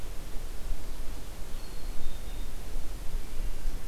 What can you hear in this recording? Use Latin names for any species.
Poecile atricapillus